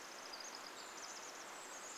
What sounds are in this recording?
Brown Creeper call, Pacific Wren song